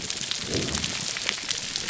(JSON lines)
{"label": "biophony", "recorder": "SoundTrap 300"}